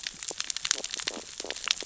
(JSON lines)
{"label": "biophony, stridulation", "recorder": "SoundTrap 600 or HydroMoth"}